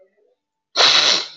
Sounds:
Sniff